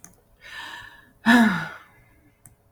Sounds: Sigh